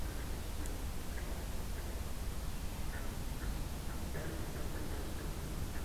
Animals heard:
forest ambience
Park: Acadia National Park